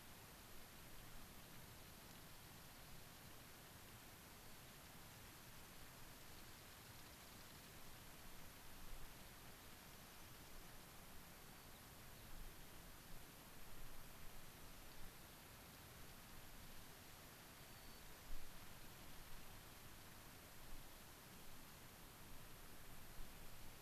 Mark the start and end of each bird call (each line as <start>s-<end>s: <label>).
4.2s-4.7s: White-crowned Sparrow (Zonotrichia leucophrys)
6.6s-7.7s: unidentified bird
9.7s-10.9s: unidentified bird
11.2s-11.8s: White-crowned Sparrow (Zonotrichia leucophrys)
17.6s-18.1s: White-crowned Sparrow (Zonotrichia leucophrys)